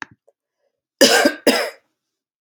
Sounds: Cough